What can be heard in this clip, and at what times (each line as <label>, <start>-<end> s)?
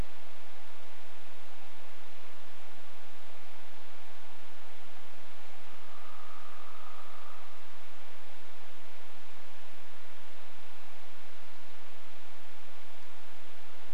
woodpecker drumming, 4-8 s